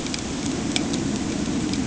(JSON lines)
{"label": "anthrophony, boat engine", "recorder": "HydroMoth"}